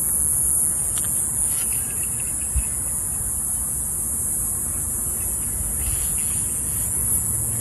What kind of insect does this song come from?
cicada